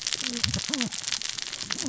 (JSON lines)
{"label": "biophony, cascading saw", "recorder": "SoundTrap 600 or HydroMoth"}